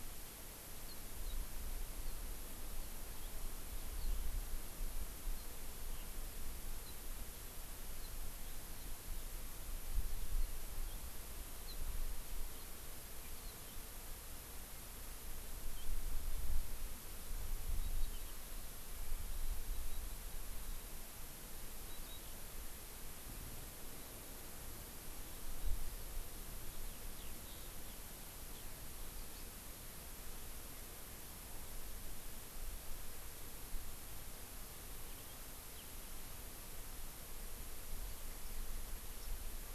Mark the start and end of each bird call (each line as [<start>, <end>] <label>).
[26.85, 27.95] Eurasian Skylark (Alauda arvensis)
[28.45, 28.75] Eurasian Skylark (Alauda arvensis)
[34.95, 35.85] Eurasian Skylark (Alauda arvensis)